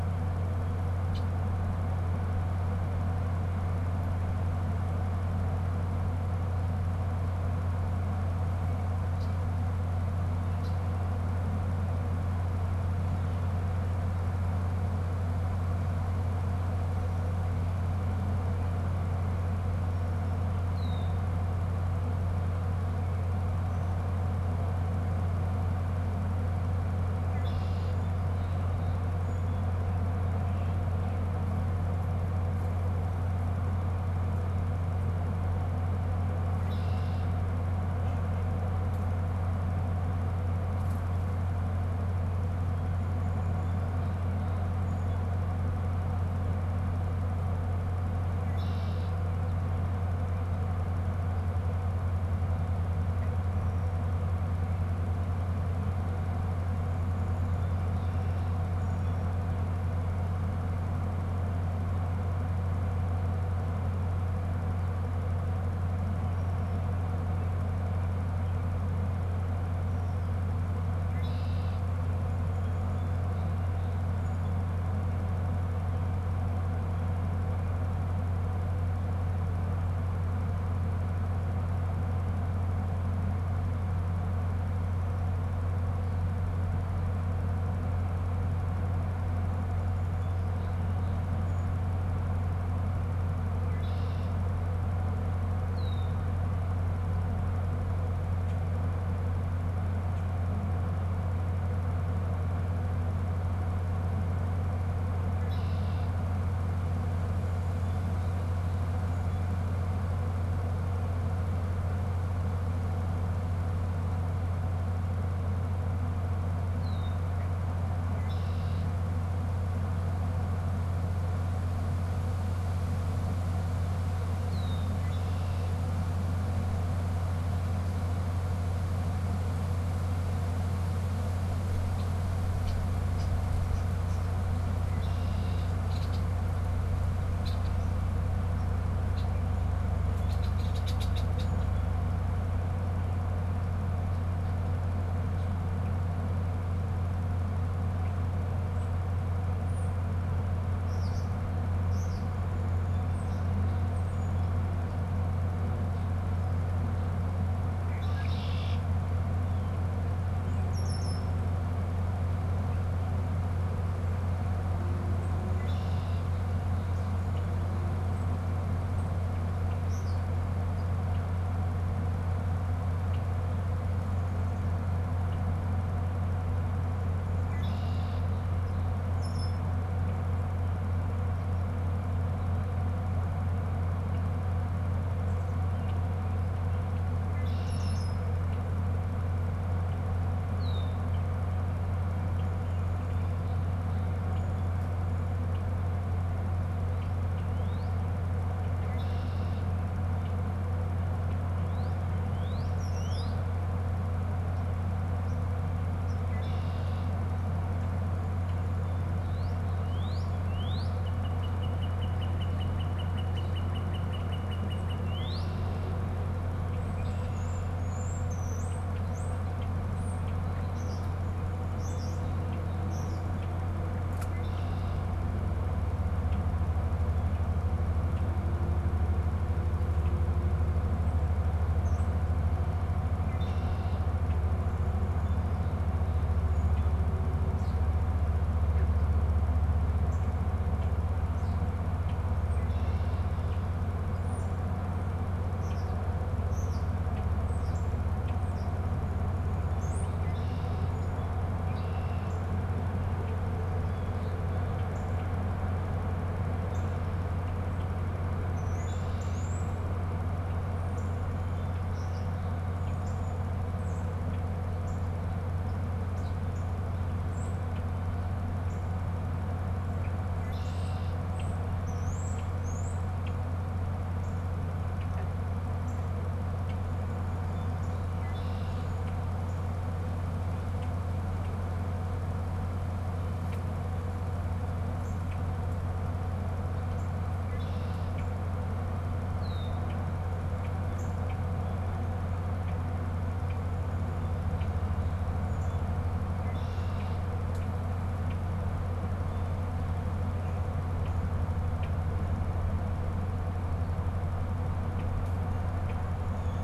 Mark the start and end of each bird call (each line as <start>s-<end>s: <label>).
0.0s-1.4s: Red-winged Blackbird (Agelaius phoeniceus)
8.9s-11.0s: Red-winged Blackbird (Agelaius phoeniceus)
20.5s-21.4s: Red-winged Blackbird (Agelaius phoeniceus)
27.3s-28.2s: Red-winged Blackbird (Agelaius phoeniceus)
28.3s-30.1s: Song Sparrow (Melospiza melodia)
36.4s-38.6s: Red-winged Blackbird (Agelaius phoeniceus)
44.7s-45.4s: Song Sparrow (Melospiza melodia)
48.1s-49.5s: Red-winged Blackbird (Agelaius phoeniceus)
57.6s-59.2s: Song Sparrow (Melospiza melodia)
70.8s-72.1s: Red-winged Blackbird (Agelaius phoeniceus)
72.5s-74.4s: Song Sparrow (Melospiza melodia)
90.0s-91.8s: Song Sparrow (Melospiza melodia)
93.2s-100.4s: Red-winged Blackbird (Agelaius phoeniceus)
105.1s-106.4s: Red-winged Blackbird (Agelaius phoeniceus)
107.5s-109.7s: Song Sparrow (Melospiza melodia)
116.7s-117.8s: Red-winged Blackbird (Agelaius phoeniceus)
118.3s-119.0s: Red-winged Blackbird (Agelaius phoeniceus)
124.3s-125.9s: Red-winged Blackbird (Agelaius phoeniceus)
131.5s-148.2s: Red-winged Blackbird (Agelaius phoeniceus)
149.4s-154.5s: unidentified bird
157.4s-161.3s: Red-winged Blackbird (Agelaius phoeniceus)
165.3s-169.3s: Red-winged Blackbird (Agelaius phoeniceus)
169.6s-170.5s: unidentified bird
170.6s-199.9s: Red-winged Blackbird (Agelaius phoeniceus)
197.3s-198.1s: Northern Cardinal (Cardinalis cardinalis)
201.6s-203.6s: Northern Cardinal (Cardinalis cardinalis)
209.2s-216.1s: Northern Cardinal (Cardinalis cardinalis)
216.7s-228.5s: Red-winged Blackbird (Agelaius phoeniceus)
216.9s-223.3s: European Starling (Sturnus vulgaris)
230.0s-258.2s: Red-winged Blackbird (Agelaius phoeniceus)
231.6s-232.3s: European Starling (Sturnus vulgaris)
239.9s-240.3s: Northern Cardinal (Cardinalis cardinalis)
244.1s-273.1s: European Starling (Sturnus vulgaris)
258.6s-306.6s: Red-winged Blackbird (Agelaius phoeniceus)
262.9s-279.9s: Northern Cardinal (Cardinalis cardinalis)
284.9s-297.8s: Northern Cardinal (Cardinalis cardinalis)